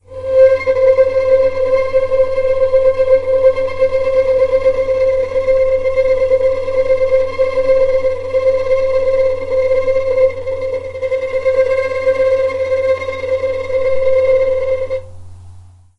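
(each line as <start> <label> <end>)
0.0 A violin plays a rapid, trembling tremolo with a continuous oscillating sound. 16.0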